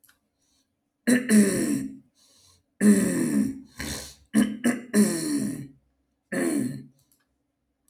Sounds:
Throat clearing